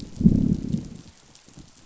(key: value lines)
label: biophony, growl
recorder: SoundTrap 500